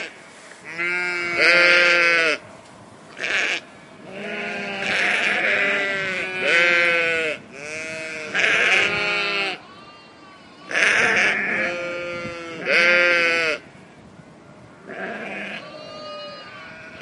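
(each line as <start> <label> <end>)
0.0 Multiple sheep bleat. 17.0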